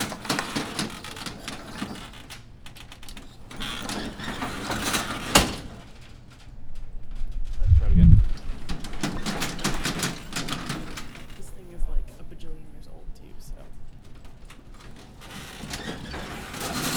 What gender do voices belong to?
female